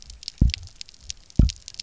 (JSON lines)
{"label": "biophony, double pulse", "recorder": "SoundTrap 300"}